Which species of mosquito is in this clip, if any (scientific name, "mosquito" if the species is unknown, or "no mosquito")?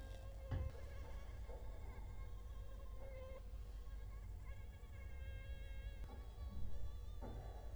Culex quinquefasciatus